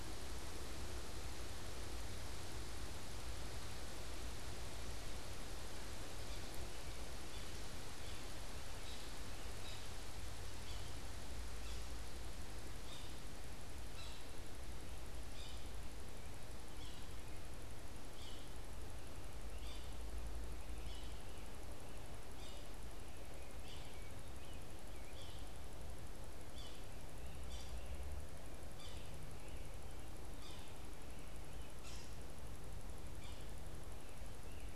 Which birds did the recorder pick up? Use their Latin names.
Sphyrapicus varius, Turdus migratorius